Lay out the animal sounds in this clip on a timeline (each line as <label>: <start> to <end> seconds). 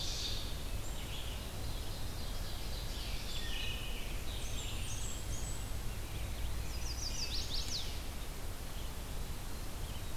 Ovenbird (Seiurus aurocapilla): 0.0 to 0.7 seconds
Red-eyed Vireo (Vireo olivaceus): 0.0 to 4.9 seconds
Ovenbird (Seiurus aurocapilla): 1.4 to 3.7 seconds
Wood Thrush (Hylocichla mustelina): 3.1 to 4.4 seconds
Blackburnian Warbler (Setophaga fusca): 4.0 to 5.8 seconds
Chestnut-sided Warbler (Setophaga pensylvanica): 6.5 to 8.0 seconds